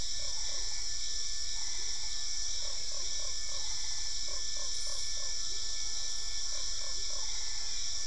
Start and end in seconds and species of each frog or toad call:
0.0	0.6	Boana lundii
0.0	8.0	Dendropsophus cruzi
0.2	4.4	Boana albopunctata
2.5	3.3	Physalaemus marmoratus
2.6	7.2	Boana lundii
7.2	8.0	Physalaemus marmoratus

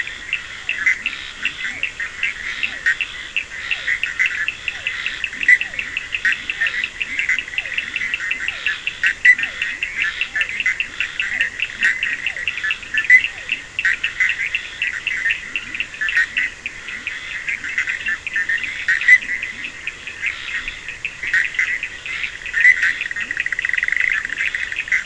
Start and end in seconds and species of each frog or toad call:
0.0	1.9	Leptodactylus latrans
0.0	25.0	Boana bischoffi
0.0	25.0	Scinax perereca
0.0	25.0	Sphaenorhynchus surdus
0.5	13.6	Physalaemus cuvieri
2.6	19.8	Leptodactylus latrans
22.7	24.2	Dendropsophus nahdereri
22.9	23.4	Leptodactylus latrans

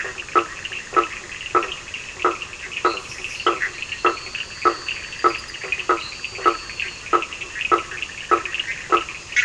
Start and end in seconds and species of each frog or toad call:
0.0	9.4	Boana faber
0.0	9.4	Sphaenorhynchus surdus
3.5	4.1	Boana bischoffi
4.1	7.3	Elachistocleis bicolor
7.7	9.4	Boana bischoffi

